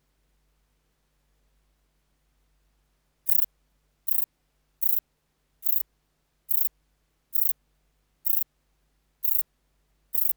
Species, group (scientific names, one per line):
Rhacocleis poneli
Orthoptera